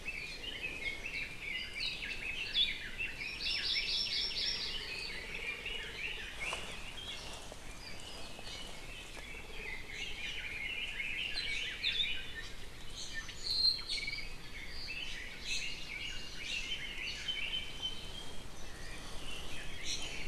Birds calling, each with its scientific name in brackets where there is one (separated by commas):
Iiwi (Drepanis coccinea), Red-billed Leiothrix (Leiothrix lutea), Hawaii Amakihi (Chlorodrepanis virens), Apapane (Himatione sanguinea), Hawaii Akepa (Loxops coccineus)